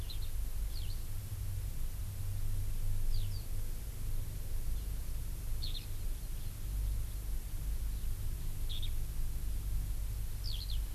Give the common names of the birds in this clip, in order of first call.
Eurasian Skylark